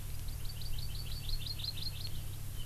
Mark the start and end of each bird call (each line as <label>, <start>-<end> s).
Hawaii Amakihi (Chlorodrepanis virens), 0.2-2.1 s